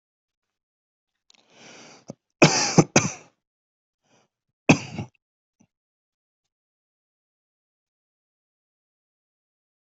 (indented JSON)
{
  "expert_labels": [
    {
      "quality": "good",
      "cough_type": "unknown",
      "dyspnea": false,
      "wheezing": false,
      "stridor": false,
      "choking": false,
      "congestion": false,
      "nothing": true,
      "diagnosis": "upper respiratory tract infection",
      "severity": "mild"
    }
  ],
  "age": 22,
  "gender": "other",
  "respiratory_condition": false,
  "fever_muscle_pain": false,
  "status": "symptomatic"
}